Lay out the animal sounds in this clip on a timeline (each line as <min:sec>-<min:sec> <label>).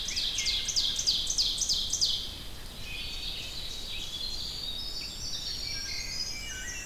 0:00.0-0:04.5 Ovenbird (Seiurus aurocapilla)
0:03.9-0:06.9 Winter Wren (Troglodytes hiemalis)
0:05.7-0:06.9 Wood Thrush (Hylocichla mustelina)